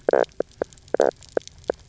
{"label": "biophony, knock croak", "recorder": "SoundTrap 300"}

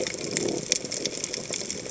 {"label": "biophony", "recorder": "HydroMoth"}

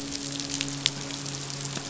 {"label": "biophony, midshipman", "recorder": "SoundTrap 500"}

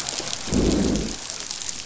{"label": "biophony, growl", "recorder": "SoundTrap 500"}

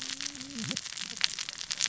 {"label": "biophony, cascading saw", "recorder": "SoundTrap 600 or HydroMoth"}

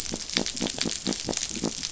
{"label": "biophony", "recorder": "SoundTrap 500"}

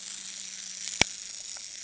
{"label": "anthrophony, boat engine", "recorder": "HydroMoth"}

